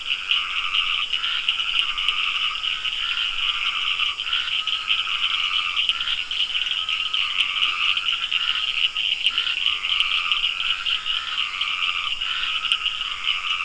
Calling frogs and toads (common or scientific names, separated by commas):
Dendropsophus nahdereri, Scinax perereca, Cochran's lime tree frog